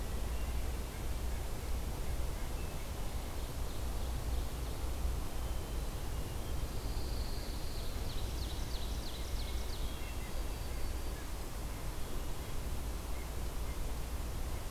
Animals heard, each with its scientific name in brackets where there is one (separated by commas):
Pine Warbler (Setophaga pinus), Red-breasted Nuthatch (Sitta canadensis), Black-throated Blue Warbler (Setophaga caerulescens), Ovenbird (Seiurus aurocapilla), Hermit Thrush (Catharus guttatus)